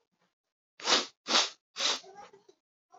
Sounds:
Sniff